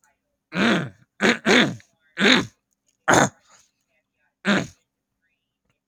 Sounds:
Throat clearing